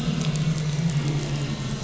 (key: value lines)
label: anthrophony, boat engine
recorder: SoundTrap 500